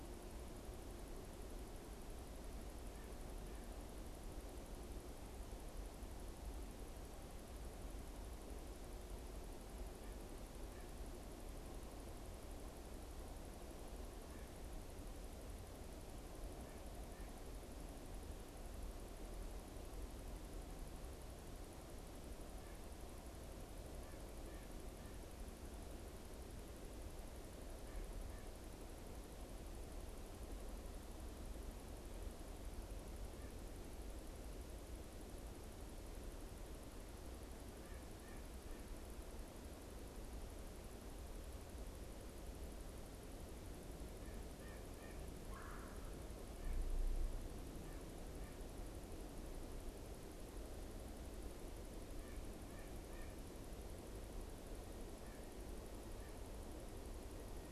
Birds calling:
White-breasted Nuthatch (Sitta carolinensis), Red-bellied Woodpecker (Melanerpes carolinus)

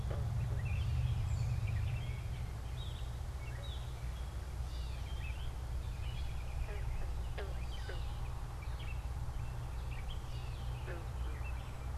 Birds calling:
American Robin (Turdus migratorius), Gray Catbird (Dumetella carolinensis)

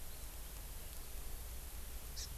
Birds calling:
Hawaii Amakihi (Chlorodrepanis virens)

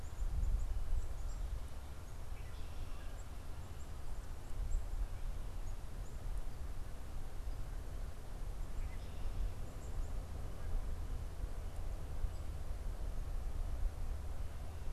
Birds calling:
Black-capped Chickadee (Poecile atricapillus), Red-winged Blackbird (Agelaius phoeniceus), Canada Goose (Branta canadensis)

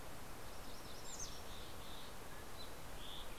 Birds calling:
Mountain Quail (Oreortyx pictus), MacGillivray's Warbler (Geothlypis tolmiei), Mountain Chickadee (Poecile gambeli), Green-tailed Towhee (Pipilo chlorurus)

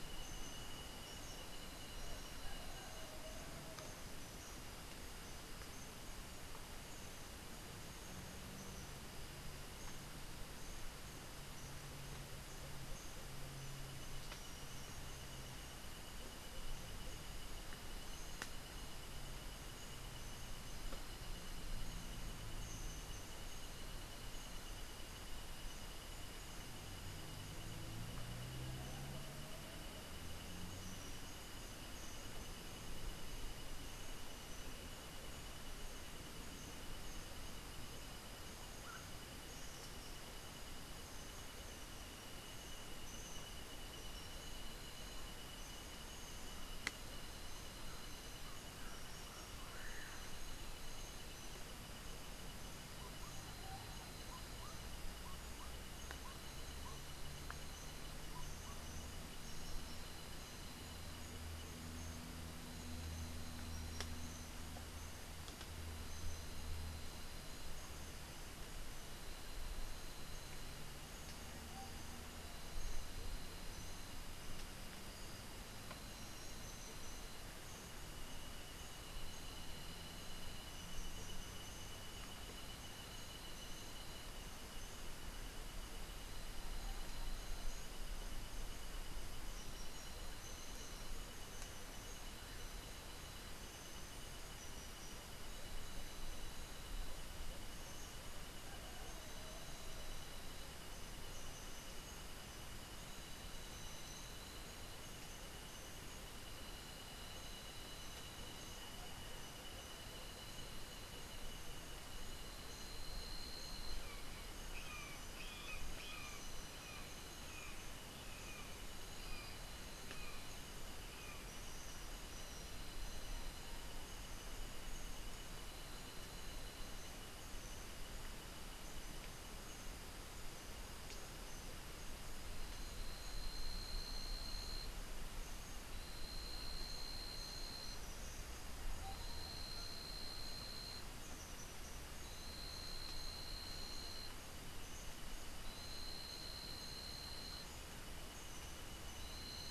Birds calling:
Common Pauraque (Nyctidromus albicollis), Brown Jay (Psilorhinus morio)

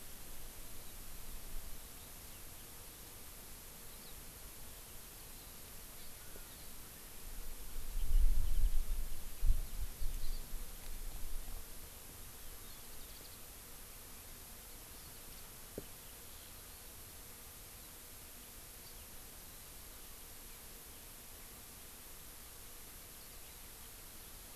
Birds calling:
Hawaii Amakihi (Chlorodrepanis virens), Warbling White-eye (Zosterops japonicus)

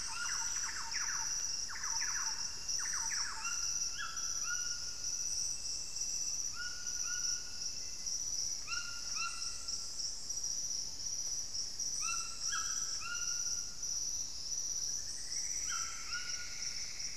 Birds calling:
Black-faced Antthrush (Formicarius analis), Thrush-like Wren (Campylorhynchus turdinus), White-throated Toucan (Ramphastos tucanus), Plumbeous Antbird (Myrmelastes hyperythrus)

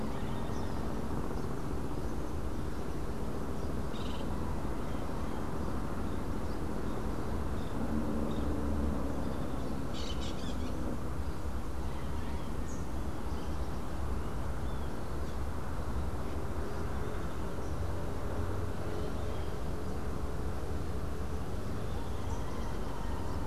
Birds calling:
Crimson-fronted Parakeet (Psittacara finschi), Hoffmann's Woodpecker (Melanerpes hoffmannii)

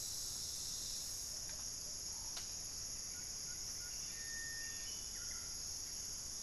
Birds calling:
Buff-breasted Wren (Cantorchilus leucotis), unidentified bird

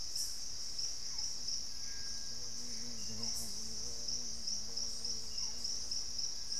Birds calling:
Barred Forest-Falcon (Micrastur ruficollis), Gray Antbird (Cercomacra cinerascens)

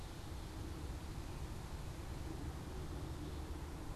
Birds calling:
Black-capped Chickadee (Poecile atricapillus)

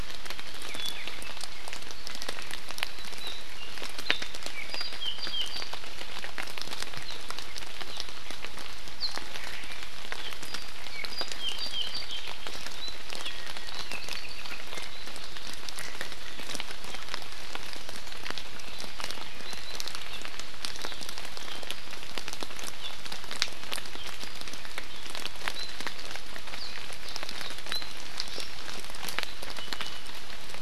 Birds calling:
Iiwi (Drepanis coccinea), Apapane (Himatione sanguinea)

